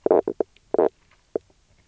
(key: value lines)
label: biophony, knock croak
recorder: SoundTrap 300